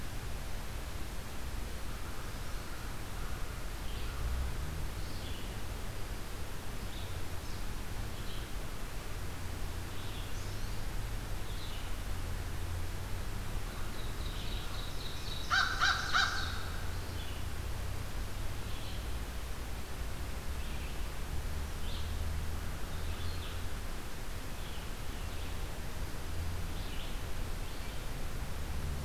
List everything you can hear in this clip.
Red-eyed Vireo, American Goldfinch, Ovenbird, American Crow